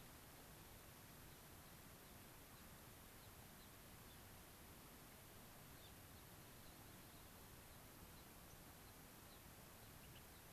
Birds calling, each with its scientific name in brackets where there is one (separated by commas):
Gray-crowned Rosy-Finch (Leucosticte tephrocotis), unidentified bird